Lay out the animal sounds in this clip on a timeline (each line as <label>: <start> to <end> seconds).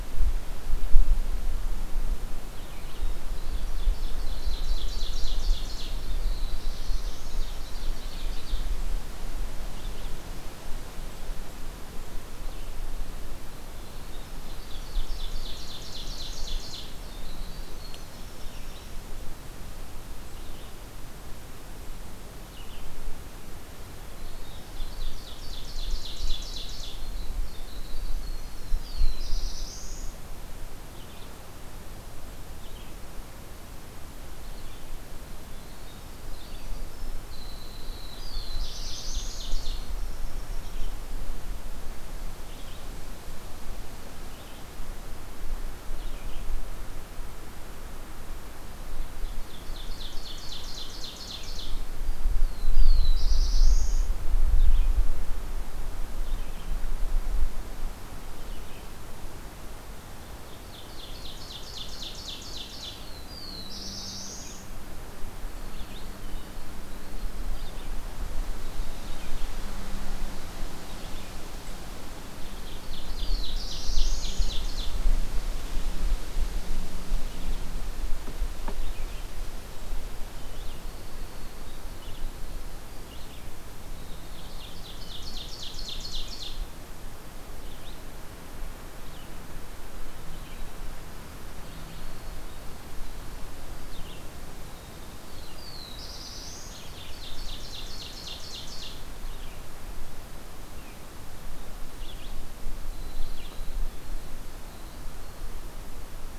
Red-eyed Vireo (Vireo olivaceus): 2.5 to 3.2 seconds
Ovenbird (Seiurus aurocapilla): 3.5 to 6.1 seconds
Black-throated Blue Warbler (Setophaga caerulescens): 6.0 to 7.3 seconds
Ovenbird (Seiurus aurocapilla): 6.9 to 8.7 seconds
Red-eyed Vireo (Vireo olivaceus): 9.7 to 12.7 seconds
Ovenbird (Seiurus aurocapilla): 14.4 to 17.0 seconds
Winter Wren (Troglodytes hiemalis): 16.4 to 18.6 seconds
Red-eyed Vireo (Vireo olivaceus): 18.3 to 23.1 seconds
Ovenbird (Seiurus aurocapilla): 24.3 to 27.1 seconds
Winter Wren (Troglodytes hiemalis): 26.1 to 29.5 seconds
Red-eyed Vireo (Vireo olivaceus): 28.6 to 31.4 seconds
Black-throated Blue Warbler (Setophaga caerulescens): 28.7 to 30.3 seconds
Red-eyed Vireo (Vireo olivaceus): 32.5 to 46.4 seconds
Winter Wren (Troglodytes hiemalis): 35.5 to 41.1 seconds
Black-throated Blue Warbler (Setophaga caerulescens): 38.2 to 39.6 seconds
Ovenbird (Seiurus aurocapilla): 38.6 to 39.9 seconds
Ovenbird (Seiurus aurocapilla): 49.0 to 51.9 seconds
Black-throated Blue Warbler (Setophaga caerulescens): 52.7 to 54.2 seconds
Red-eyed Vireo (Vireo olivaceus): 54.4 to 59.2 seconds
Ovenbird (Seiurus aurocapilla): 60.3 to 63.1 seconds
Black-throated Blue Warbler (Setophaga caerulescens): 63.2 to 64.6 seconds
Winter Wren (Troglodytes hiemalis): 64.7 to 68.5 seconds
Red-eyed Vireo (Vireo olivaceus): 65.6 to 71.7 seconds
Ovenbird (Seiurus aurocapilla): 72.2 to 75.0 seconds
Black-throated Blue Warbler (Setophaga caerulescens): 73.1 to 74.5 seconds
Red-eyed Vireo (Vireo olivaceus): 75.5 to 103.7 seconds
Winter Wren (Troglodytes hiemalis): 79.1 to 83.5 seconds
Ovenbird (Seiurus aurocapilla): 84.3 to 86.6 seconds
Black-throated Blue Warbler (Setophaga caerulescens): 95.5 to 96.9 seconds
Ovenbird (Seiurus aurocapilla): 96.6 to 99.0 seconds
Winter Wren (Troglodytes hiemalis): 102.2 to 105.6 seconds